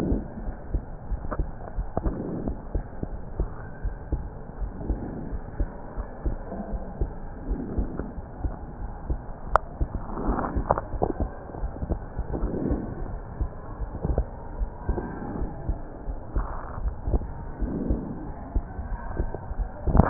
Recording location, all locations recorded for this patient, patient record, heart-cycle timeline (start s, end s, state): pulmonary valve (PV)
aortic valve (AV)+pulmonary valve (PV)+tricuspid valve (TV)+mitral valve (MV)
#Age: Child
#Sex: Male
#Height: 114.0 cm
#Weight: 19.6 kg
#Pregnancy status: False
#Murmur: Absent
#Murmur locations: nan
#Most audible location: nan
#Systolic murmur timing: nan
#Systolic murmur shape: nan
#Systolic murmur grading: nan
#Systolic murmur pitch: nan
#Systolic murmur quality: nan
#Diastolic murmur timing: nan
#Diastolic murmur shape: nan
#Diastolic murmur grading: nan
#Diastolic murmur pitch: nan
#Diastolic murmur quality: nan
#Outcome: Normal
#Campaign: 2015 screening campaign
0.00	0.18	unannotated
0.18	0.44	diastole
0.44	0.54	S1
0.54	0.72	systole
0.72	0.82	S2
0.82	1.10	diastole
1.10	1.20	S1
1.20	1.36	systole
1.36	1.48	S2
1.48	1.76	diastole
1.76	1.88	S1
1.88	2.04	systole
2.04	2.18	S2
2.18	2.46	diastole
2.46	2.58	S1
2.58	2.72	systole
2.72	2.82	S2
2.82	3.10	diastole
3.10	3.20	S1
3.20	3.36	systole
3.36	3.52	S2
3.52	3.84	diastole
3.84	3.96	S1
3.96	4.10	systole
4.10	4.24	S2
4.24	4.60	diastole
4.60	4.72	S1
4.72	4.88	systole
4.88	4.98	S2
4.98	5.30	diastole
5.30	5.42	S1
5.42	5.58	systole
5.58	5.68	S2
5.68	5.98	diastole
5.98	6.06	S1
6.06	6.24	systole
6.24	6.38	S2
6.38	6.70	diastole
6.70	6.82	S1
6.82	7.00	systole
7.00	7.12	S2
7.12	7.48	diastole
7.48	7.60	S1
7.60	7.76	systole
7.76	7.90	S2
7.90	8.16	diastole
8.16	8.24	S1
8.24	8.40	systole
8.40	8.54	S2
8.54	8.82	diastole
8.82	8.90	S1
8.90	9.06	systole
9.06	9.20	S2
9.20	9.50	diastole
9.50	9.62	S1
9.62	9.82	systole
9.82	9.92	S2
9.92	10.24	diastole
10.24	10.40	S1
10.40	10.54	systole
10.54	10.68	S2
10.68	10.90	diastole
10.90	11.08	S1
11.08	11.20	systole
11.20	11.32	S2
11.32	11.62	diastole
11.62	11.72	S1
11.72	11.90	systole
11.90	12.02	S2
12.02	13.08	unannotated
13.08	13.22	S1
13.22	13.36	systole
13.36	13.48	S2
13.48	13.80	diastole
13.80	13.94	S1
13.94	14.10	systole
14.10	14.26	S2
14.26	14.58	diastole
14.58	14.72	S1
14.72	14.86	systole
14.86	15.02	S2
15.02	15.36	diastole
15.36	15.52	S1
15.52	15.68	systole
15.68	15.80	S2
15.80	16.08	diastole
16.08	16.18	S1
16.18	16.34	systole
16.34	16.46	S2
16.46	16.78	diastole
16.78	16.94	S1
16.94	17.08	systole
17.08	17.24	S2
17.24	17.60	diastole
17.60	17.72	S1
17.72	17.90	systole
17.90	18.06	S2
18.06	18.26	diastole
18.26	20.10	unannotated